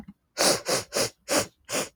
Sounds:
Sniff